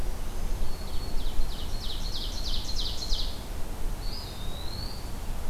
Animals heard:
Eastern Wood-Pewee (Contopus virens)
Black-throated Green Warbler (Setophaga virens)
Ovenbird (Seiurus aurocapilla)

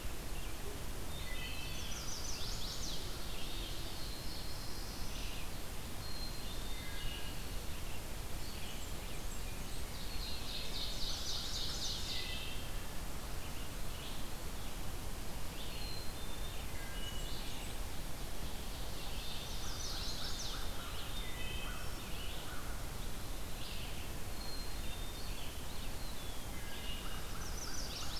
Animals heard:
Ovenbird (Seiurus aurocapilla)
American Crow (Corvus brachyrhynchos)
Blackburnian Warbler (Setophaga fusca)
Red-eyed Vireo (Vireo olivaceus)
Chestnut-sided Warbler (Setophaga pensylvanica)
Black-capped Chickadee (Poecile atricapillus)
Black-throated Blue Warbler (Setophaga caerulescens)
Wood Thrush (Hylocichla mustelina)
Eastern Wood-Pewee (Contopus virens)

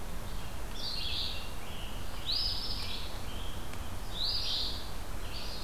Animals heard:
Red-eyed Vireo (Vireo olivaceus)
Eastern Phoebe (Sayornis phoebe)
Scarlet Tanager (Piranga olivacea)

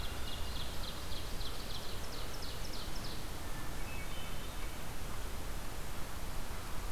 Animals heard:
American Crow (Corvus brachyrhynchos)
Ovenbird (Seiurus aurocapilla)
Hermit Thrush (Catharus guttatus)

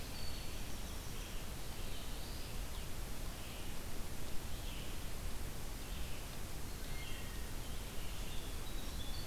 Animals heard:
Wood Thrush (Hylocichla mustelina)
Red-eyed Vireo (Vireo olivaceus)
Winter Wren (Troglodytes hiemalis)
Black-throated Blue Warbler (Setophaga caerulescens)

